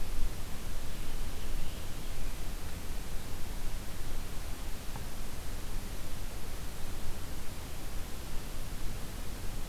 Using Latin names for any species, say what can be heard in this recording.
forest ambience